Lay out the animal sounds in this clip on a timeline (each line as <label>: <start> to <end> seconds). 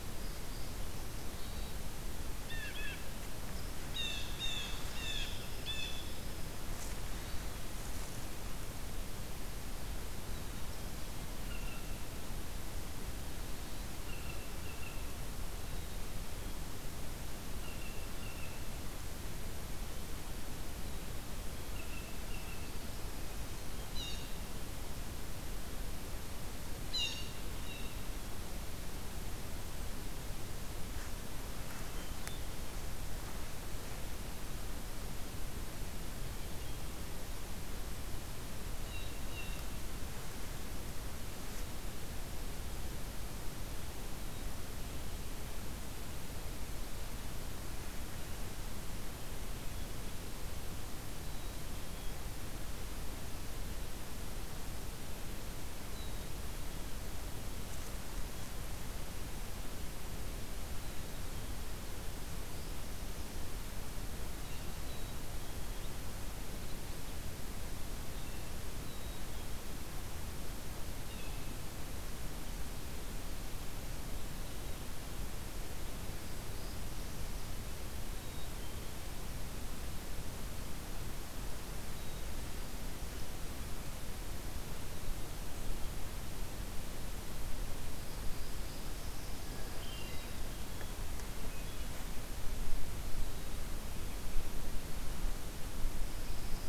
Hermit Thrush (Catharus guttatus): 1.3 to 1.8 seconds
Blue Jay (Cyanocitta cristata): 2.3 to 3.0 seconds
Blue Jay (Cyanocitta cristata): 3.9 to 6.1 seconds
Blue Jay (Cyanocitta cristata): 11.3 to 12.1 seconds
Blue Jay (Cyanocitta cristata): 13.9 to 15.2 seconds
Blue Jay (Cyanocitta cristata): 17.3 to 18.7 seconds
Blue Jay (Cyanocitta cristata): 21.3 to 22.7 seconds
Blue Jay (Cyanocitta cristata): 23.7 to 24.4 seconds
Blue Jay (Cyanocitta cristata): 26.9 to 28.1 seconds
Hermit Thrush (Catharus guttatus): 31.8 to 32.7 seconds
Blue Jay (Cyanocitta cristata): 38.6 to 39.8 seconds
Black-capped Chickadee (Poecile atricapillus): 51.2 to 52.3 seconds
Black-capped Chickadee (Poecile atricapillus): 64.8 to 66.1 seconds
Black-capped Chickadee (Poecile atricapillus): 68.7 to 69.7 seconds
Hermit Thrush (Catharus guttatus): 70.8 to 71.6 seconds
Black-capped Chickadee (Poecile atricapillus): 77.9 to 78.9 seconds
Pine Warbler (Setophaga pinus): 88.8 to 90.5 seconds
Hermit Thrush (Catharus guttatus): 89.2 to 90.4 seconds
Pine Warbler (Setophaga pinus): 96.0 to 96.7 seconds